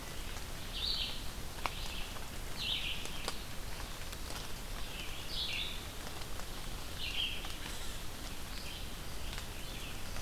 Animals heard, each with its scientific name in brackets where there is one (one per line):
Red-eyed Vireo (Vireo olivaceus)